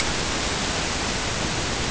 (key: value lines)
label: ambient
recorder: HydroMoth